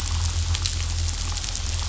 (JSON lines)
{"label": "anthrophony, boat engine", "recorder": "SoundTrap 500"}